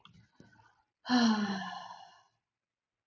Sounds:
Sigh